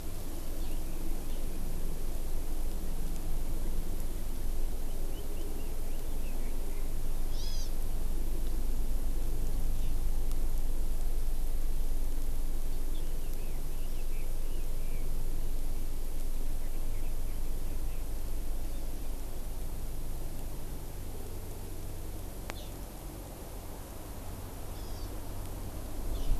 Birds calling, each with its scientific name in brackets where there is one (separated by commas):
Hawaii Amakihi (Chlorodrepanis virens), Red-billed Leiothrix (Leiothrix lutea)